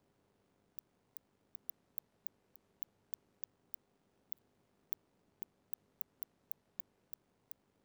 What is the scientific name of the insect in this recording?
Cyrtaspis scutata